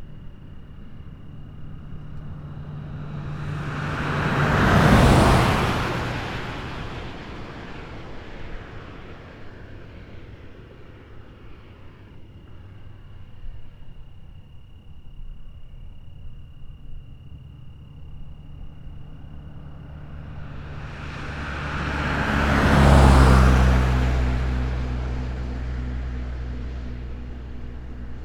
Are there cars driving?
yes